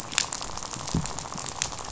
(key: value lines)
label: biophony, rattle
recorder: SoundTrap 500